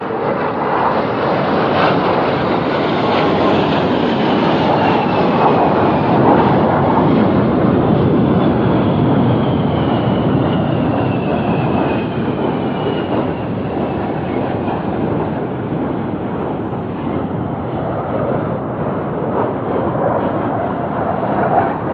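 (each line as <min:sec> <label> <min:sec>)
0:00.1 An airplane is flying. 0:21.9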